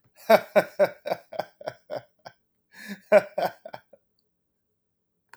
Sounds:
Laughter